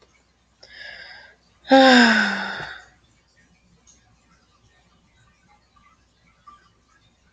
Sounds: Sigh